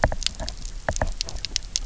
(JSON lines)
{"label": "biophony, knock", "recorder": "SoundTrap 300"}